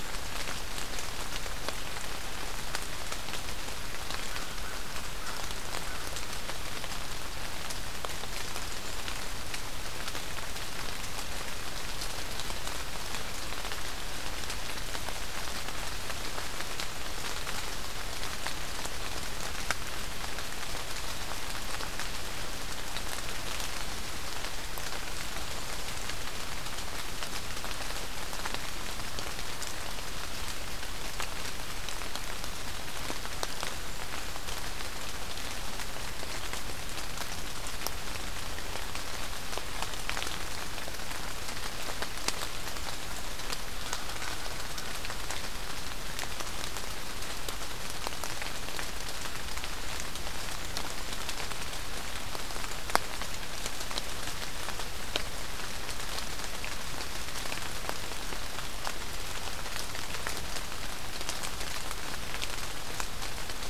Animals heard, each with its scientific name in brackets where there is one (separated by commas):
American Crow (Corvus brachyrhynchos)